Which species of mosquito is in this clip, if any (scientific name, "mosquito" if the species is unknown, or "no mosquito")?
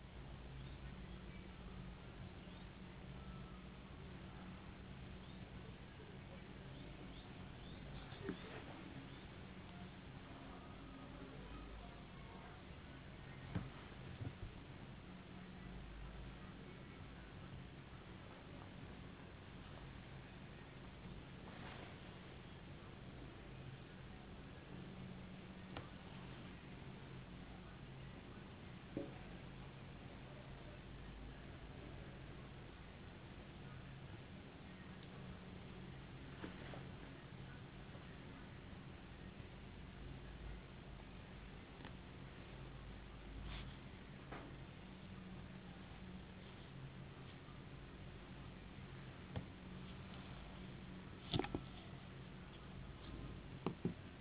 no mosquito